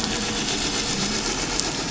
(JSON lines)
{"label": "anthrophony, boat engine", "recorder": "SoundTrap 500"}